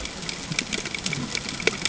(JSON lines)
{"label": "ambient", "recorder": "HydroMoth"}